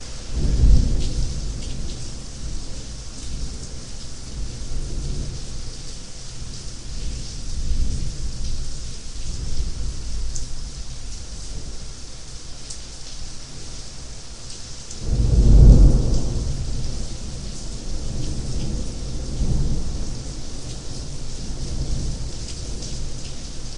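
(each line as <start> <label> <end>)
0.0 A soft wind blows. 1.6
0.0 Soft rain is falling in the distance. 23.8
14.9 A soft wind blows. 23.8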